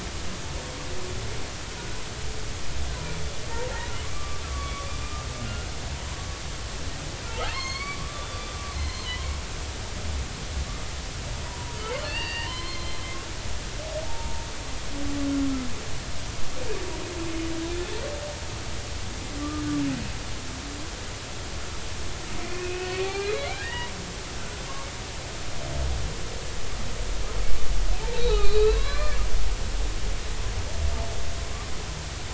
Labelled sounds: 4.1	4.9	humpback whale, 1.1 to 1.2 kHz
5.4	5.7	humpback whale, 1.3 to 1.5 kHz
7.5	9.1	humpback whale, 0.99 to 4.6 kHz
11.5	13.0	humpback whale, 0.86 to 4.9 kHz
14.0	14.5	humpback whale, 0.80 to 0.96 kHz
19.4	19.6	humpback whale, 1.1 to 1.2 kHz
22.4	24.6	humpback whale, 0.80 to 2.9 kHz
28.1	29.2	humpback whale, 0.80 to 4.3 kHz

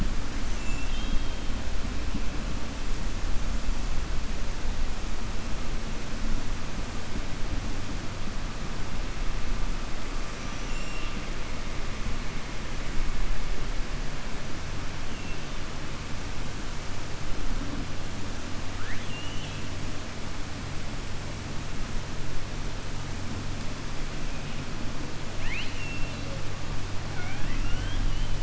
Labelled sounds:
10.6	11.2	killer whale, 2.6 to 3.7 kHz
18.7	19.7	killer whale, 1.3 to 3.9 kHz
27.0	28.3	killer whale, 0.72 to 3.4 kHz

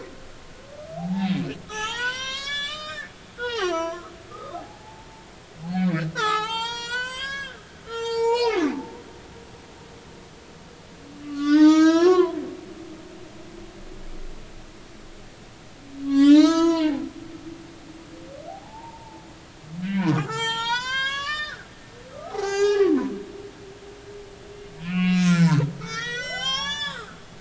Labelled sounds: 1.0	3.1	humpback whale, 0.80 to 8.0 kHz
3.4	5.1	humpback whale, 0.80 to 6.2 kHz
6.1	7.6	humpback whale, 0.80 to 8.0 kHz
7.8	8.6	humpback whale, 0.80 to 7.5 kHz
11.2	12.4	humpback whale, 0.86 to 7.4 kHz
16.0	17.0	humpback whale, 0.80 to 6.8 kHz
18.5	19.2	humpback whale, 0.80 to 0.99 kHz
19.8	21.7	humpback whale, 0.83 to 7.8 kHz
22.1	23.1	humpback whale, 0.80 to 7.5 kHz
24.8	27.2	humpback whale, 0.80 to 7.9 kHz

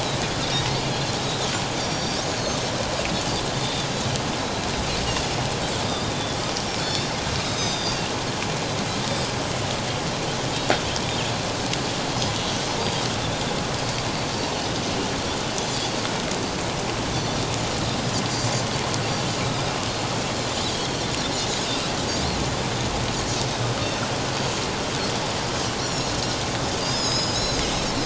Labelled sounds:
0.5	0.8	Pacific white-sided dolphin, 1.8 to 2.2 kHz
1.2	2.7	Pacific white-sided dolphin, 3.1 to 6.5 kHz
3.5	3.9	Pacific white-sided dolphin, 3.3 to 3.7 kHz
5.8	6.1	Pacific white-sided dolphin, 3.5 to 3.8 kHz
6.8	8.0	Pacific white-sided dolphin, 3.3 to 6.3 kHz
20.7	21.1	Pacific white-sided dolphin, 3.1 to 4.4 kHz
25.7	26.1	Pacific white-sided dolphin, 4.0 to 7.2 kHz
26.8	27.7	Pacific white-sided dolphin, 3.8 to 7.0 kHz

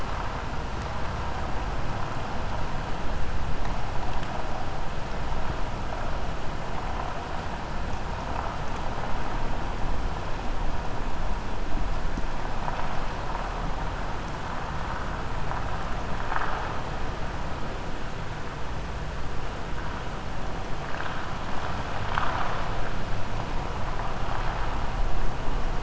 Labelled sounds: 21.9	22.6	vessel noise, 0.66 to 5.0 kHz

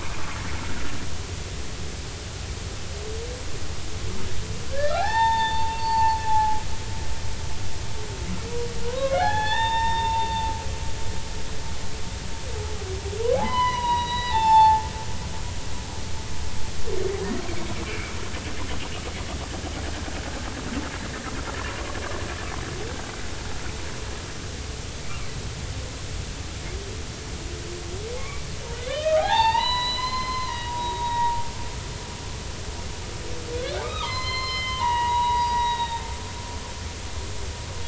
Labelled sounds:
4.7	6.6	humpback whale, 0.80 to 5.4 kHz
8.8	11.1	humpback whale, 0.80 to 5.5 kHz
13.4	14.8	humpback whale, 0.80 to 7.1 kHz
17.9	18.1	humpback whale, 2.1 to 2.4 kHz
28.2	31.4	humpback whale, 0.80 to 5.2 kHz
33.5	36.1	humpback whale, 0.80 to 6.3 kHz

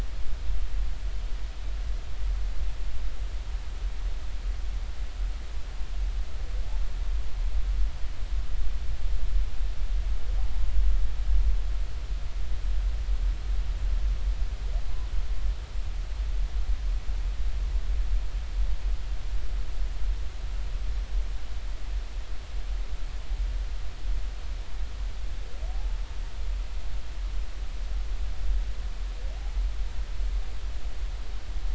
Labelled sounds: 25.7	26.0	humpback whale, 0.80 to 0.93 kHz

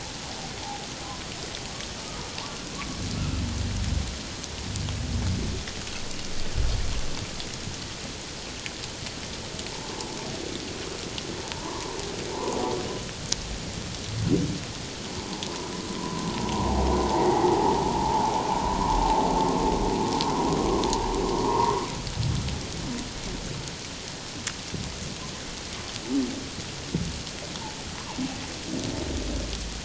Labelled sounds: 3.2	3.4	humpback whale, 1.2 to 1.4 kHz
9.7	10.0	humpback whale, 0.81 to 1.1 kHz
11.5	12.6	humpback whale, 0.84 to 1.2 kHz
15.9	16.3	humpback whale, 0.91 to 1.1 kHz
17.1	18.3	humpback whale, 0.78 to 2.1 kHz
21.4	21.7	humpback whale, 0.88 to 1.2 kHz

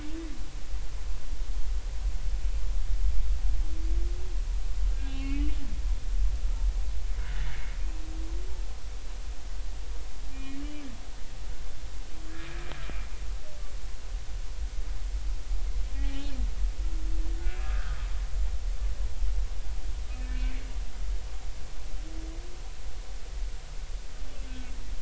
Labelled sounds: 4.9	5.5	humpback whale, 1.6 to 3.1 kHz
10.3	10.6	humpback whale, 1.8 to 2.5 kHz
16.0	16.3	humpback whale, 0.80 to 0.86 kHz
17.4	18.0	humpback whale, 1.2 to 1.8 kHz
20.2	20.5	humpback whale, 2.2 to 2.4 kHz
24.5	24.8	humpback whale, 1.5 to 2.6 kHz

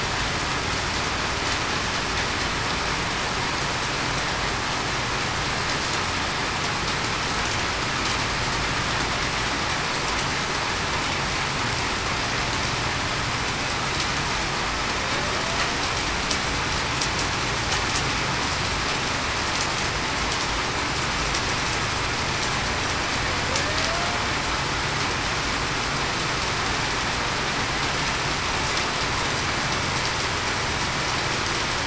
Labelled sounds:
23.7	24.1	killer whale, Bigg's (transient), 0.63 to 0.70 kHz

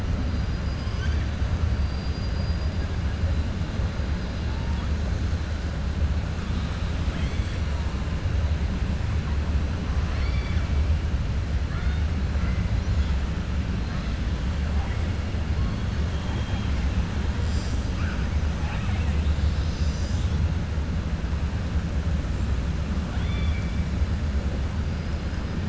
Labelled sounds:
1.7	2.7	killer whale, 3.9 to 4.9 kHz
10.0	10.7	killer whale, 1.0 to 5.5 kHz
23.1	23.8	killer whale, 0.75 to 4.3 kHz

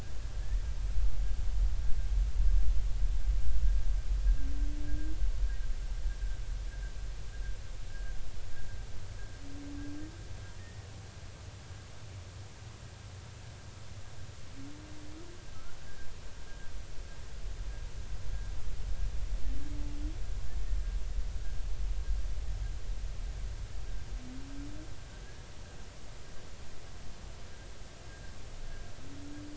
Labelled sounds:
10.6	10.9	humpback whale, 1.7 to 1.9 kHz
15.5	16.1	humpback whale, 1.2 to 1.7 kHz

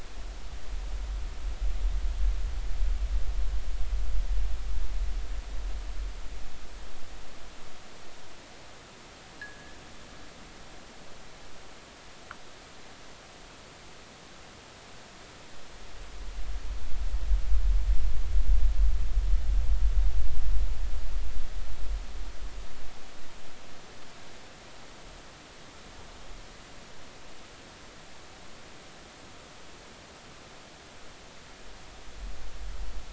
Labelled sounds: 9.4	9.8	fishing gear, 1.6 to 1.9 kHz

